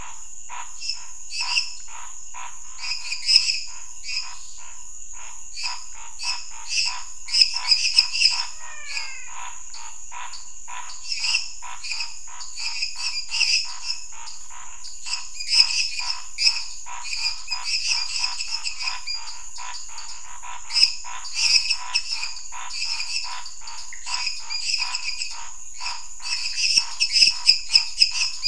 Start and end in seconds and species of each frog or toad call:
0.0	28.4	Dendropsophus minutus
0.0	28.4	Scinax fuscovarius
8.4	9.4	Physalaemus albonotatus
10:15pm

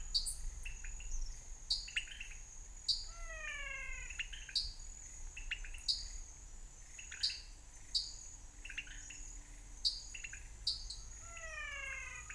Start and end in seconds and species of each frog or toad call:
0.0	12.3	Leptodactylus podicipinus
0.0	0.6	Dendropsophus nanus
1.6	3.2	Dendropsophus nanus
2.9	4.3	Physalaemus albonotatus
4.3	6.3	Dendropsophus nanus
7.2	8.5	Dendropsophus nanus
9.8	11.1	Dendropsophus nanus
11.2	12.3	Physalaemus albonotatus
6:15pm

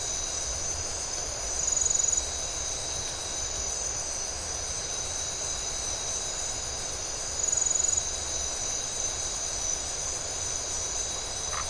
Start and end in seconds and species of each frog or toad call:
11.5	11.6	Phyllomedusa distincta
1:15am

